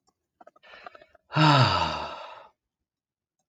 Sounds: Sigh